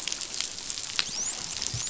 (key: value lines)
label: biophony, dolphin
recorder: SoundTrap 500